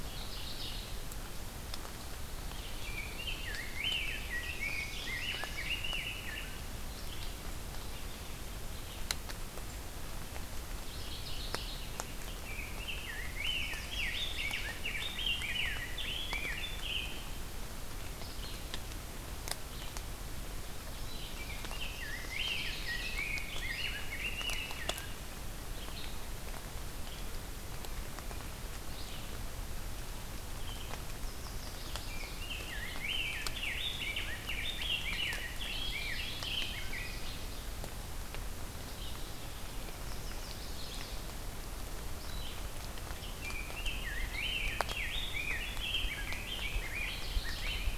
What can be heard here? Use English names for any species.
Mourning Warbler, Pine Warbler, Rose-breasted Grosbeak, Chestnut-sided Warbler, Red-eyed Vireo